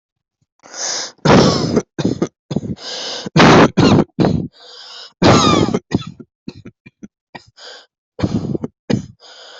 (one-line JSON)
{"expert_labels": [{"quality": "good", "cough_type": "wet", "dyspnea": true, "wheezing": true, "stridor": false, "choking": false, "congestion": false, "nothing": false, "diagnosis": "COVID-19", "severity": "severe"}], "age": 18, "gender": "female", "respiratory_condition": true, "fever_muscle_pain": true, "status": "COVID-19"}